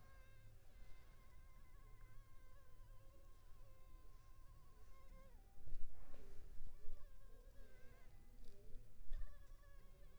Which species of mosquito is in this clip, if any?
Culex pipiens complex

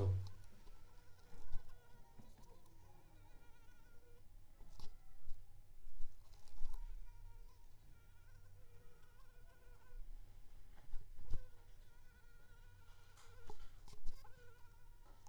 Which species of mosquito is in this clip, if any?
Anopheles arabiensis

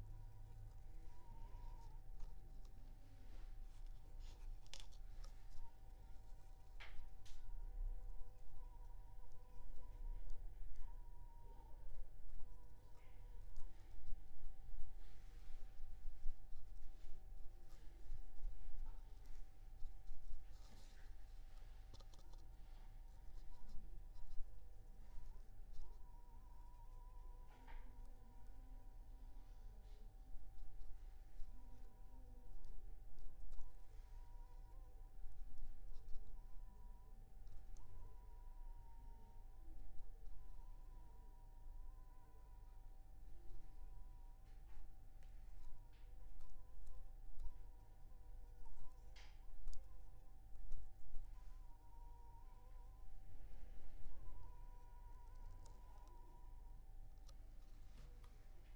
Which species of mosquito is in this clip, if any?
Anopheles funestus s.s.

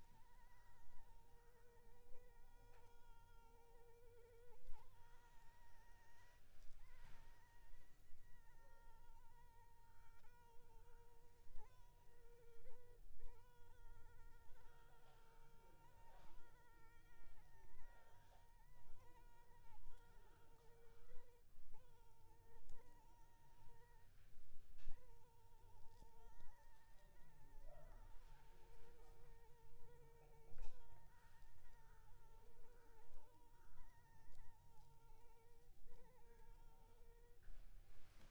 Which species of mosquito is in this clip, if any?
Anopheles arabiensis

